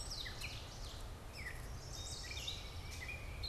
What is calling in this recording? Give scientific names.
Seiurus aurocapilla, Dumetella carolinensis, Setophaga pensylvanica, Baeolophus bicolor